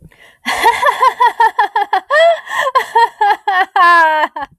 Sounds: Laughter